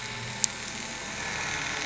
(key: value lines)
label: anthrophony, boat engine
recorder: SoundTrap 500